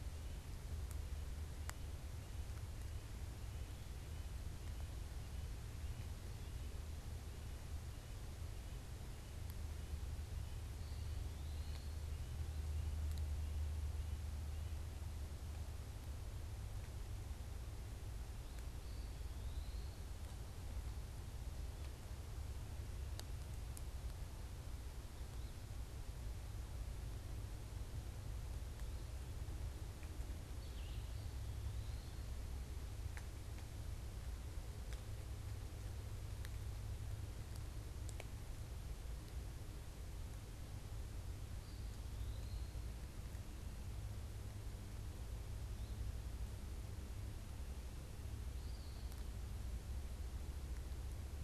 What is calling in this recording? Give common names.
Eastern Wood-Pewee, Red-eyed Vireo